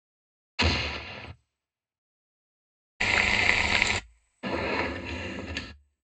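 At 0.58 seconds, an explosion can be heard. Afterwards, at 3.0 seconds, cooking is heard. Next, at 4.42 seconds, furniture moving is audible.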